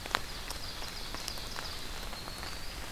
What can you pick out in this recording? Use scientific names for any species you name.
Seiurus aurocapilla, Setophaga coronata